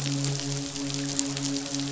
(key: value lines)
label: biophony, midshipman
recorder: SoundTrap 500